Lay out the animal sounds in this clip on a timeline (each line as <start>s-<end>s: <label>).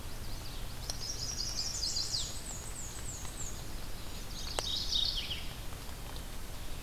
0.0s-2.3s: Chestnut-sided Warbler (Setophaga pensylvanica)
0.0s-6.3s: Red-eyed Vireo (Vireo olivaceus)
1.4s-3.8s: Black-and-white Warbler (Mniotilta varia)
3.5s-5.0s: Chestnut-sided Warbler (Setophaga pensylvanica)
4.2s-5.7s: Mourning Warbler (Geothlypis philadelphia)